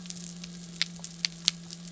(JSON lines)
{"label": "anthrophony, boat engine", "recorder": "SoundTrap 300"}